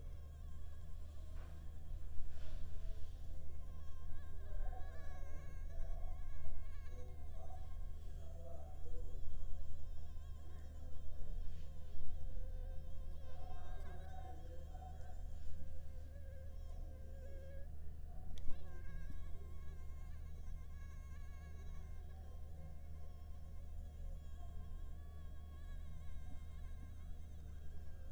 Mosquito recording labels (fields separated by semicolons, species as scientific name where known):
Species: Anopheles arabiensis; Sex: female; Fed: unfed; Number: one; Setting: cup